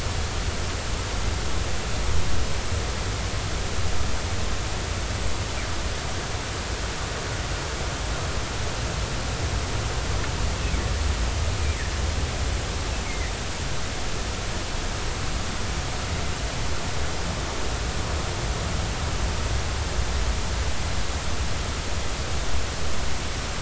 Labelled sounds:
13.0	13.3	humpback whale, 1.8 to 2.3 kHz

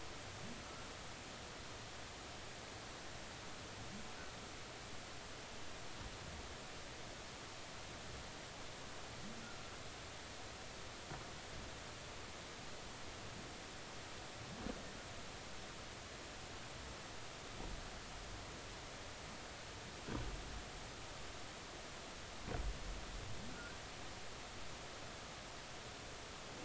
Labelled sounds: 0.6	0.9	humpback whale, 1.3 to 1.5 kHz

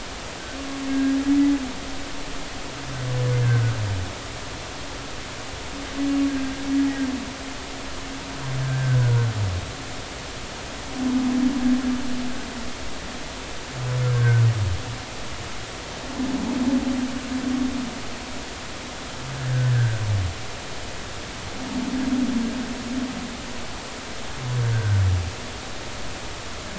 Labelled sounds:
0.9	1.2	humpback whale, 1.6 to 1.7 kHz
3.4	3.7	humpback whale, 1.4 to 1.7 kHz
6.3	6.6	humpback whale, 1.5 to 1.7 kHz
8.6	9.2	humpback whale, 1.4 to 1.7 kHz
14.1	14.4	humpback whale, 1.4 to 1.7 kHz
19.6	20.0	humpback whale, 1.5 to 1.8 kHz
24.7	25.0	humpback whale, 1.4 to 1.6 kHz

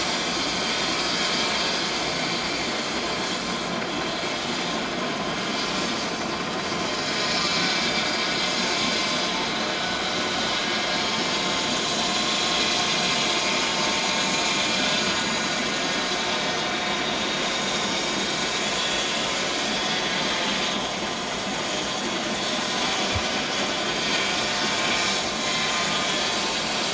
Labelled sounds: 2.1	2.4	vessel noise, 4.5 to 4.6 kHz
8.2	8.4	vessel noise, 3.8 to 3.9 kHz
16.2	16.5	vessel noise, 7.1 to 7.2 kHz
17.5	18.1	vessel noise, 5.4 to 7.9 kHz
25.4	25.7	vessel noise, 1.9 to 2.1 kHz

